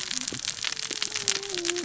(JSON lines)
{"label": "biophony, cascading saw", "recorder": "SoundTrap 600 or HydroMoth"}